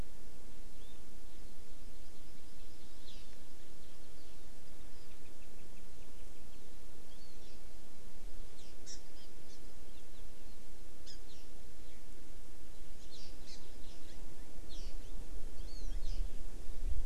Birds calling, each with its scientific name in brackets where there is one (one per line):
Hawaii Amakihi (Chlorodrepanis virens)